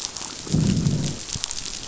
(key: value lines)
label: biophony, growl
recorder: SoundTrap 500